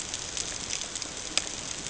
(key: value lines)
label: ambient
recorder: HydroMoth